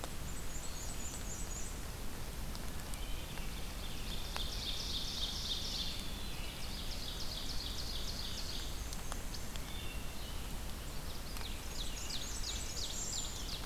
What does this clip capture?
Black-and-white Warbler, Ovenbird, Wood Thrush